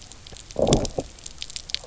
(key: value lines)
label: biophony, low growl
recorder: SoundTrap 300